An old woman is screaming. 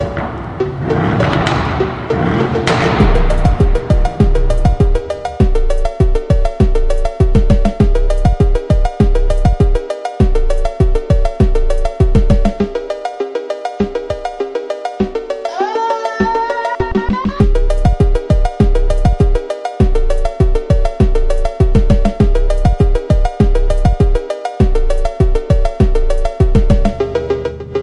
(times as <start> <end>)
15.6 17.8